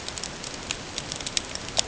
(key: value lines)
label: ambient
recorder: HydroMoth